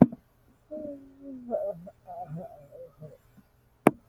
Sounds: Sigh